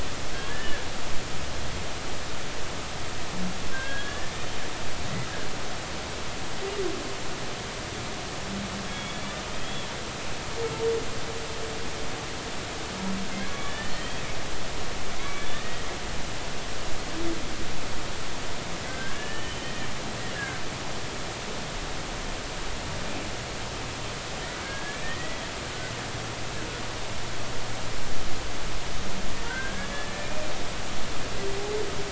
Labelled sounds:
0.3	0.7	humpback whale, 1.6 to 1.9 kHz
3.7	4.3	humpback whale, 1.5 to 1.8 kHz
8.8	9.9	humpback whale, 2.2 to 3.5 kHz
13.3	14.2	humpback whale, 1.1 to 3.3 kHz
15.2	15.8	humpback whale, 1.0 to 3.7 kHz
18.9	19.9	humpback whale, 1.5 to 3.1 kHz
20.4	20.6	humpback whale, 1.5 to 1.8 kHz
24.6	25.4	humpback whale, 1.5 to 2.0 kHz
29.4	30.5	humpback whale, 1.4 to 2.5 kHz

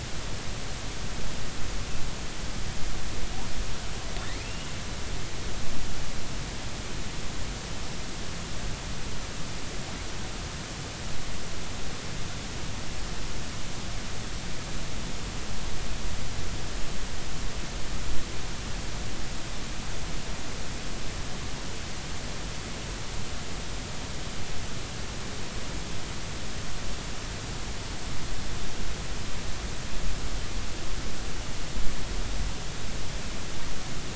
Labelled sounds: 4.4	4.7	killer whale, offshore, 2.6 to 2.9 kHz

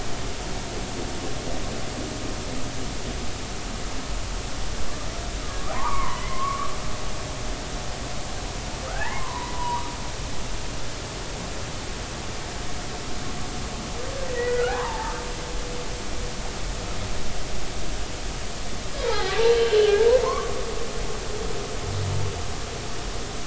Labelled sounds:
5.4	6.7	humpback whale, 0.80 to 2.3 kHz
8.9	9.9	humpback whale, 0.80 to 2.2 kHz
14.3	15.1	humpback whale, 0.83 to 2.0 kHz
19.1	20.5	humpback whale, 0.80 to 3.2 kHz

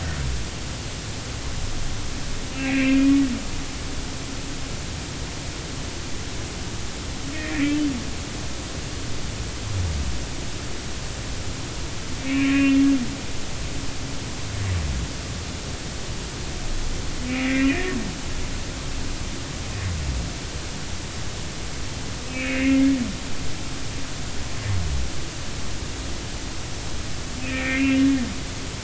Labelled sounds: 2.6	3.1	humpback whale, 1.8 to 2.8 kHz
7.3	7.6	humpback whale, 1.7 to 2.0 kHz
12.3	12.8	humpback whale, 1.1 to 2.9 kHz
17.3	17.8	humpback whale, 1.8 to 2.8 kHz
22.3	22.9	humpback whale, 2.0 to 2.9 kHz
27.4	28.0	humpback whale, 1.8 to 2.8 kHz

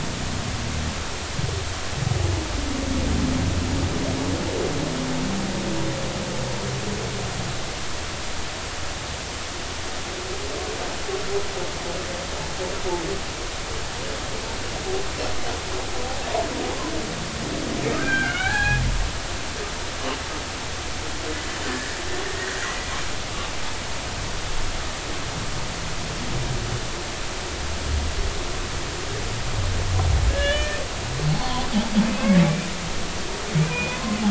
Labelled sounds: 18.0	18.8	humpback whale, 0.80 to 3.1 kHz
21.7	22.6	humpback whale, 1.7 to 1.9 kHz
30.3	30.8	humpback whale, 1.6 to 3.0 kHz
31.3	31.7	humpback whale, 0.93 to 4.5 kHz
32.1	32.7	humpback whale, 2.2 to 2.8 kHz
33.6	34.0	humpback whale, 2.3 to 2.6 kHz

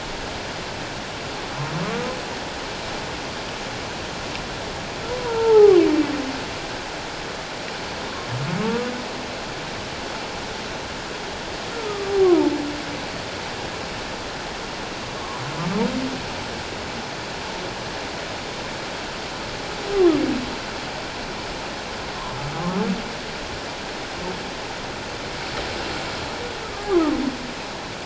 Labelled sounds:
5.2	5.8	humpback whale, 0.78 to 1.4 kHz
8.6	8.9	humpback whale, 1.0 to 1.2 kHz
11.9	12.5	humpback whale, 0.81 to 1.3 kHz

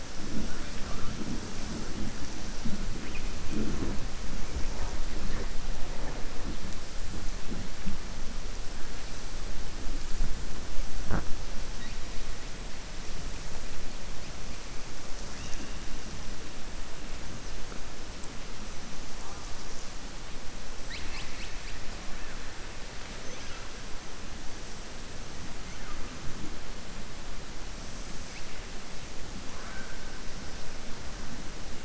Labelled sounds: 20.8	21.8	killer whale, southern resident, 1.1 to 5.1 kHz
29.5	29.9	killer whale, southern resident, 0.68 to 2.3 kHz

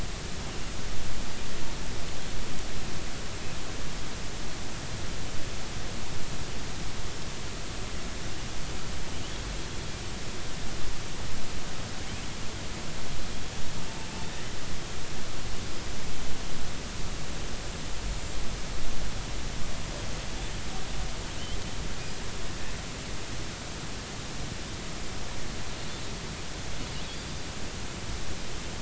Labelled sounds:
14.3	14.5	killer whale, offshore, 1.8 to 2.0 kHz

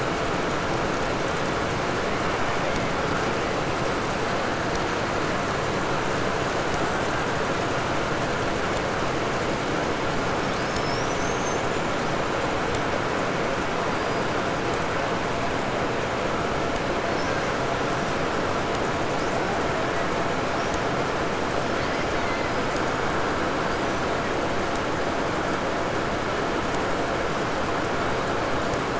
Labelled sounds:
10.2	12.0	killer whale, 4.3 to 7.4 kHz
13.8	14.5	killer whale, 4.4 to 5.1 kHz
17.1	17.7	killer whale, 1.3 to 5.6 kHz
19.1	19.4	killer whale, 4.3 to 5.4 kHz
20.5	20.9	killer whale, 4.9 to 5.9 kHz
21.5	22.8	killer whale, 1.0 to 5.5 kHz
23.6	24.2	killer whale, 4.3 to 6.3 kHz

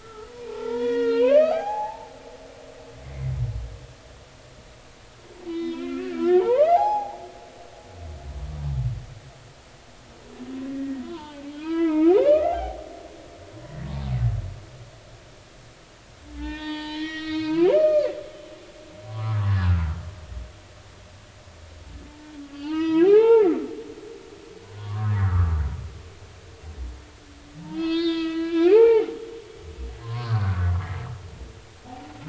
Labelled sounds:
0.0	2.1	humpback whale, 0.80 to 4.4 kHz
3.0	3.3	humpback whale, 2.0 to 2.3 kHz
5.5	7.3	humpback whale, 0.80 to 6.0 kHz
7.7	8.0	humpback whale, 4.7 to 5.1 kHz
10.7	12.9	humpback whale, 0.80 to 3.5 kHz
16.3	18.1	humpback whale, 0.80 to 5.8 kHz
19.0	19.9	humpback whale, 0.96 to 1.5 kHz
22.1	23.5	humpback whale, 0.80 to 5.2 kHz
24.8	25.5	humpback whale, 0.96 to 2.0 kHz
27.7	29.1	humpback whale, 0.93 to 5.7 kHz
29.7	30.8	humpback whale, 0.80 to 1.7 kHz
31.9	32.2	humpback whale, 0.80 to 0.99 kHz

